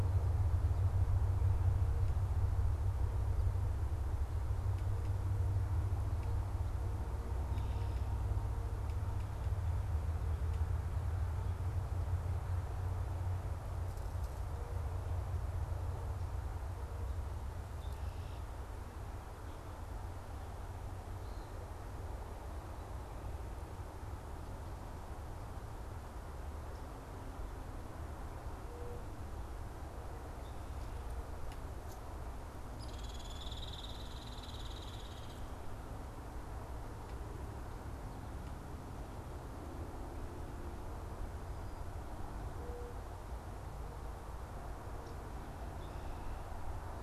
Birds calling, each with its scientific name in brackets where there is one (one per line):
Hairy Woodpecker (Dryobates villosus)